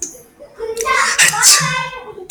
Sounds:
Sneeze